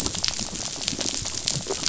{"label": "biophony, rattle", "recorder": "SoundTrap 500"}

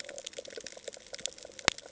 {"label": "ambient", "recorder": "HydroMoth"}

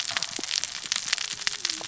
{"label": "biophony, cascading saw", "recorder": "SoundTrap 600 or HydroMoth"}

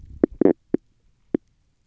{"label": "biophony, stridulation", "recorder": "SoundTrap 300"}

